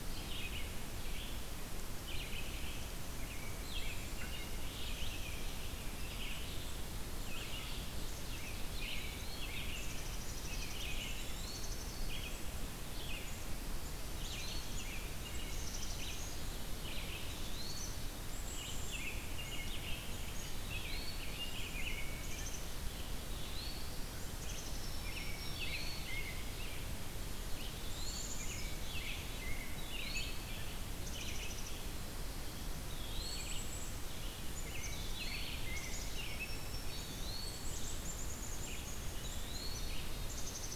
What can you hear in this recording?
American Robin, Eastern Wood-Pewee, Black-capped Chickadee, Black-throated Green Warbler